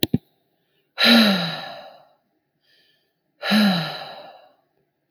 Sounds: Sigh